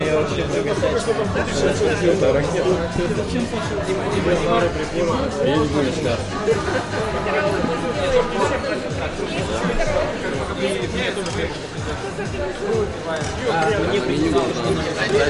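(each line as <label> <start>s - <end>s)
Eastern European pop music is playing. 0.0s - 15.3s
Multiple people are talking simultaneously. 0.0s - 15.3s
Cutlery being used in the background. 11.3s - 12.0s
Cutlery being used in the background. 13.1s - 15.3s
Cutlery clinking in the background. 13.1s - 15.3s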